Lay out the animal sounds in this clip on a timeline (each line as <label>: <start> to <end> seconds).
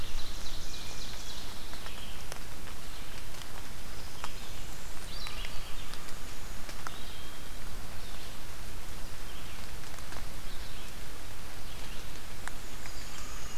Ovenbird (Seiurus aurocapilla): 0.0 to 1.8 seconds
Hermit Thrush (Catharus guttatus): 0.5 to 1.4 seconds
Red-eyed Vireo (Vireo olivaceus): 1.5 to 13.6 seconds
Blackburnian Warbler (Setophaga fusca): 3.9 to 5.3 seconds
American Crow (Corvus brachyrhynchos): 5.0 to 6.6 seconds
Hermit Thrush (Catharus guttatus): 6.9 to 8.0 seconds
Northern Parula (Setophaga americana): 12.4 to 13.6 seconds